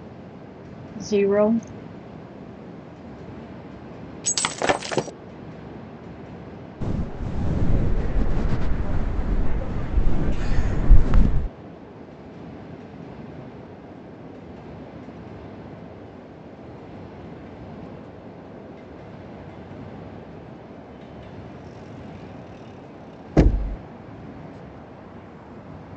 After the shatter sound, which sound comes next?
wind